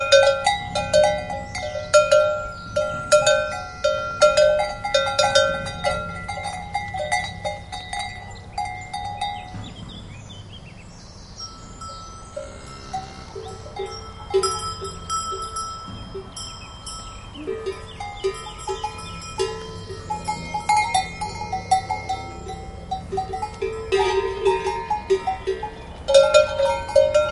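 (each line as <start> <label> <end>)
0.0 A cowbell rings continuously. 9.5
9.5 Constant bird chirping. 12.2
12.5 A cow moos. 13.4
13.5 Constant cowbell ringing. 27.3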